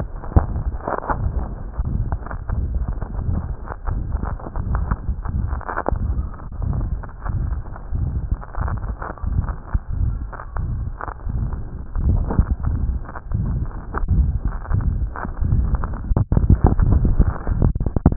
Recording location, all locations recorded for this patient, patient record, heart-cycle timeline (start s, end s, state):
aortic valve (AV)
aortic valve (AV)+pulmonary valve (PV)+tricuspid valve (TV)+mitral valve (MV)
#Age: Child
#Sex: Female
#Height: 103.0 cm
#Weight: 13.1 kg
#Pregnancy status: False
#Murmur: Present
#Murmur locations: aortic valve (AV)+mitral valve (MV)+pulmonary valve (PV)+tricuspid valve (TV)
#Most audible location: tricuspid valve (TV)
#Systolic murmur timing: Holosystolic
#Systolic murmur shape: Diamond
#Systolic murmur grading: III/VI or higher
#Systolic murmur pitch: High
#Systolic murmur quality: Harsh
#Diastolic murmur timing: nan
#Diastolic murmur shape: nan
#Diastolic murmur grading: nan
#Diastolic murmur pitch: nan
#Diastolic murmur quality: nan
#Outcome: Abnormal
#Campaign: 2015 screening campaign
0.00	6.55	unannotated
6.55	6.71	S1
6.71	6.86	systole
6.86	7.00	S2
7.00	7.22	diastole
7.22	7.37	S1
7.37	7.48	systole
7.48	7.64	S2
7.64	7.87	diastole
7.87	8.02	S1
8.02	8.26	systole
8.26	8.41	S2
8.41	8.53	diastole
8.53	8.67	S1
8.67	8.83	systole
8.83	8.96	S2
8.96	9.20	diastole
9.20	9.31	S1
9.31	9.44	systole
9.44	9.58	S2
9.58	9.85	diastole
9.85	9.99	S1
9.99	10.13	systole
10.13	10.28	S2
10.28	10.49	diastole
10.49	10.64	S1
10.64	10.82	systole
10.82	10.94	S2
10.94	11.22	diastole
11.22	11.38	S1
11.38	18.16	unannotated